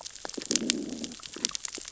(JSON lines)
{"label": "biophony, growl", "recorder": "SoundTrap 600 or HydroMoth"}